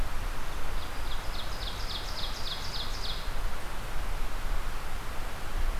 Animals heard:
Ovenbird (Seiurus aurocapilla)

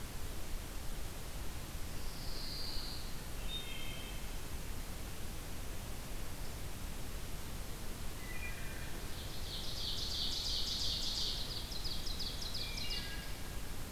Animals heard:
Ovenbird (Seiurus aurocapilla)
Wood Thrush (Hylocichla mustelina)
Pine Warbler (Setophaga pinus)

